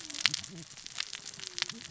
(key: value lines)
label: biophony, cascading saw
recorder: SoundTrap 600 or HydroMoth